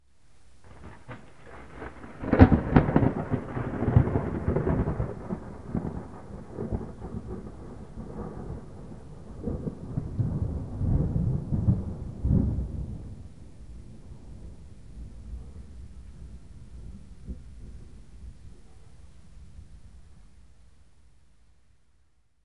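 Thunder slowly fades away. 0:01.0 - 0:19.0

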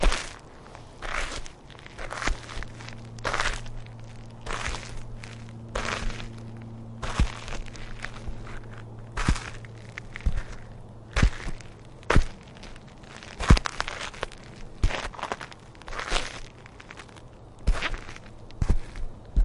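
Footsteps crunch gravel with each deliberate step, creating a rhythmic shuffle on an uneven path. 0:00.1 - 0:19.4

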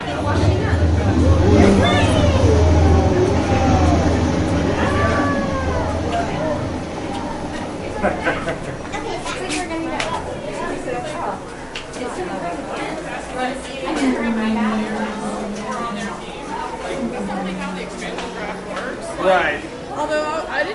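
Several people talking simultaneously in a public indoor space. 0:00.0 - 0:20.7
Ocean waves lap continuously with a distant, soft rumble. 0:00.0 - 0:08.0

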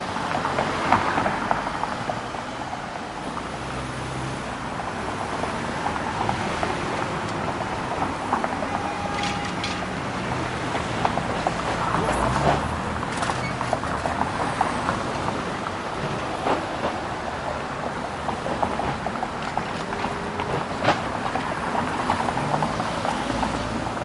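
Rattling and screeching sounds of cars passing on a busy street. 0:00.0 - 0:24.0
A car honks quietly in the distance on a busy road. 0:09.0 - 0:10.0

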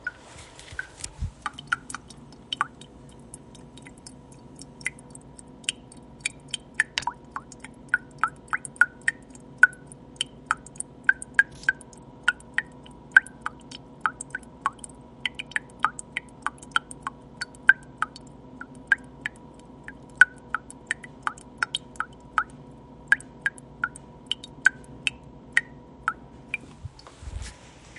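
Water dripping from a faucet into a sink. 0:00.0 - 0:28.0

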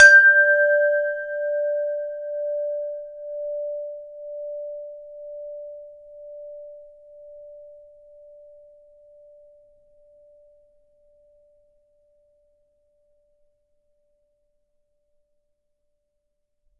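A chime slowly fades. 0:00.0 - 0:16.8

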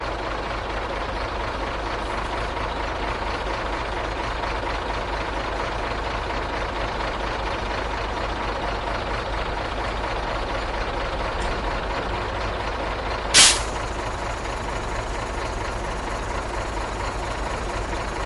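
A bus idles at a station with its engine running. 0:00.0 - 0:13.3
Compressed air blows off from a bus before it drives off. 0:13.3 - 0:13.6
A bus engine is running while the bus is stationary at a station. 0:13.6 - 0:18.3

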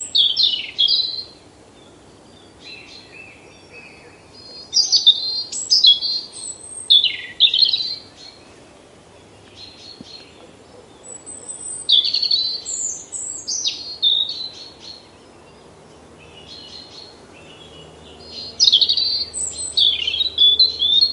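A bird is chirping nearby outdoors. 0:00.0 - 0:01.3
Birds chirp quietly in the distance. 0:02.5 - 0:03.9
A bird chirps nearby in an unstable pattern outdoors. 0:04.7 - 0:08.1
Birds chirp quietly in the distance. 0:09.4 - 0:10.5
A bird chirps nearby in an unstable pattern outdoors. 0:11.9 - 0:14.5
Birds chirp quietly in the distance. 0:14.4 - 0:15.2
Birds chirp quietly in the distance. 0:16.4 - 0:18.5
A bird chirps nearby in an unstable pattern outdoors. 0:18.5 - 0:21.1

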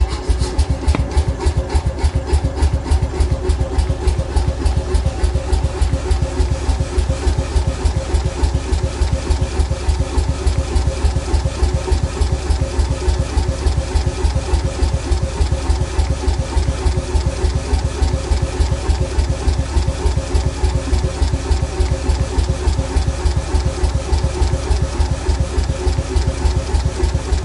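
A mechanical metal machine with a rotating tool bangs in a steady pattern. 0:00.0 - 0:27.4

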